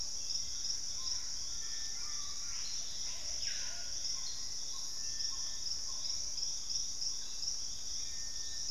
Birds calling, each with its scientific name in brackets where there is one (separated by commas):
Screaming Piha (Lipaugus vociferans), Black-tailed Trogon (Trogon melanurus), Gray Antbird (Cercomacra cinerascens), Collared Trogon (Trogon collaris), Hauxwell's Thrush (Turdus hauxwelli), Plumbeous Pigeon (Patagioenas plumbea)